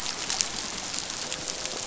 {"label": "biophony", "recorder": "SoundTrap 500"}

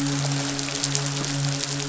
{"label": "biophony, midshipman", "recorder": "SoundTrap 500"}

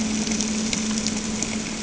{"label": "anthrophony, boat engine", "recorder": "HydroMoth"}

